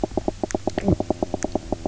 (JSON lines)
{"label": "biophony, knock croak", "recorder": "SoundTrap 300"}